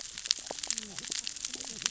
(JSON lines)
{"label": "biophony, cascading saw", "recorder": "SoundTrap 600 or HydroMoth"}